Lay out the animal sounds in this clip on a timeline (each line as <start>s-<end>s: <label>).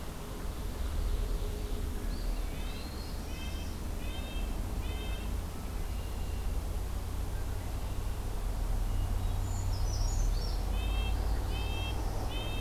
0.3s-2.0s: Ovenbird (Seiurus aurocapilla)
2.0s-3.0s: Eastern Wood-Pewee (Contopus virens)
2.5s-5.4s: Red-breasted Nuthatch (Sitta canadensis)
2.7s-3.8s: Northern Parula (Setophaga americana)
5.5s-6.6s: Red-winged Blackbird (Agelaius phoeniceus)
8.7s-10.2s: Hermit Thrush (Catharus guttatus)
9.3s-10.6s: Brown Creeper (Certhia americana)
10.6s-12.6s: Red-breasted Nuthatch (Sitta canadensis)
11.1s-12.3s: Northern Parula (Setophaga americana)